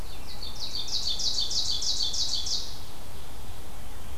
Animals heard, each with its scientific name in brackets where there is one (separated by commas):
Ovenbird (Seiurus aurocapilla)